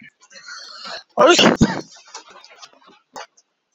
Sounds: Sneeze